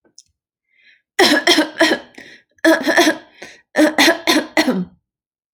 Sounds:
Cough